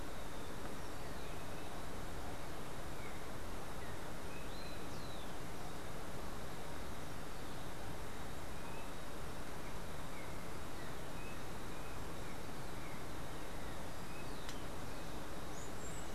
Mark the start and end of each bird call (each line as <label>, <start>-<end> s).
Rufous-collared Sparrow (Zonotrichia capensis), 4.1-5.5 s
Yellow-backed Oriole (Icterus chrysater), 8.4-14.8 s